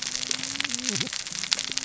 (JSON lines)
{"label": "biophony, cascading saw", "recorder": "SoundTrap 600 or HydroMoth"}